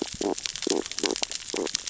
{"label": "biophony, stridulation", "recorder": "SoundTrap 600 or HydroMoth"}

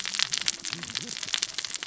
{"label": "biophony, cascading saw", "recorder": "SoundTrap 600 or HydroMoth"}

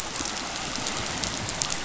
{"label": "biophony", "recorder": "SoundTrap 500"}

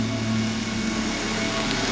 {"label": "anthrophony, boat engine", "recorder": "SoundTrap 500"}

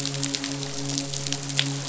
{"label": "biophony, midshipman", "recorder": "SoundTrap 500"}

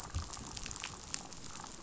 {"label": "biophony, damselfish", "recorder": "SoundTrap 500"}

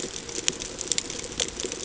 {"label": "ambient", "recorder": "HydroMoth"}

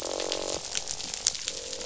{"label": "biophony, croak", "recorder": "SoundTrap 500"}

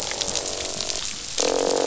{"label": "biophony, croak", "recorder": "SoundTrap 500"}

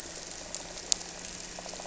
{"label": "anthrophony, boat engine", "recorder": "SoundTrap 300"}
{"label": "biophony", "recorder": "SoundTrap 300"}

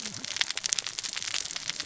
{"label": "biophony, cascading saw", "recorder": "SoundTrap 600 or HydroMoth"}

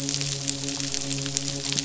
{"label": "biophony, midshipman", "recorder": "SoundTrap 500"}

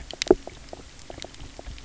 {"label": "biophony, knock croak", "recorder": "SoundTrap 300"}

